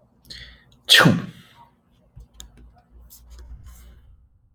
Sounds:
Sneeze